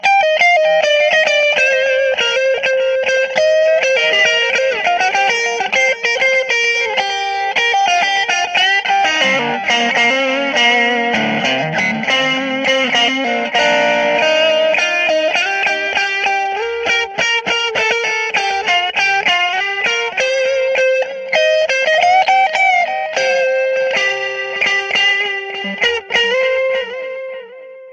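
0.1s A person is playing electric guitar indoors. 27.9s
0.1s A person is playing music on an electric guitar indoors. 27.9s

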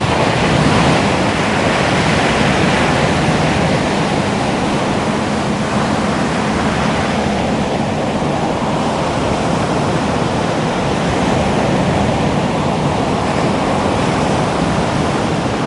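0.0s Loud continuous sound of multiple ocean waves. 15.7s

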